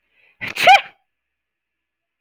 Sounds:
Sneeze